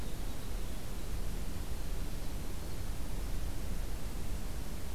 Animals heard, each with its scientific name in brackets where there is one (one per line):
Winter Wren (Troglodytes hiemalis)